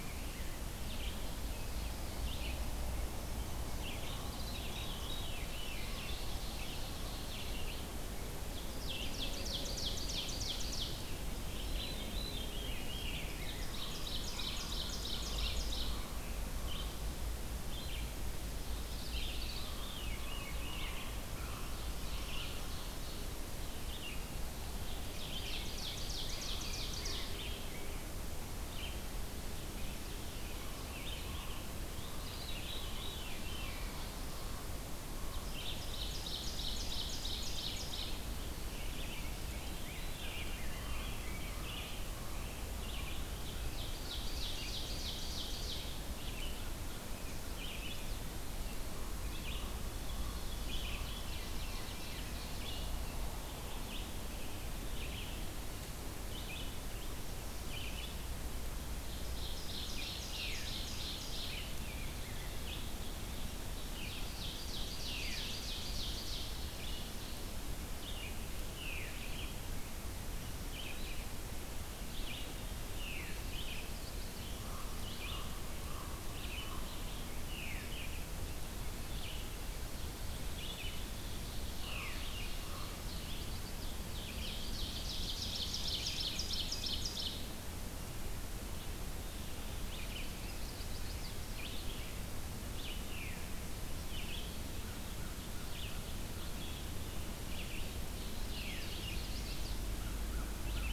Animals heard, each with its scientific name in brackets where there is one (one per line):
Red-eyed Vireo (Vireo olivaceus)
Chestnut-sided Warbler (Setophaga pensylvanica)
Common Raven (Corvus corax)
Veery (Catharus fuscescens)
Ovenbird (Seiurus aurocapilla)
Rose-breasted Grosbeak (Pheucticus ludovicianus)
American Crow (Corvus brachyrhynchos)